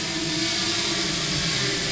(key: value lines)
label: anthrophony, boat engine
recorder: SoundTrap 500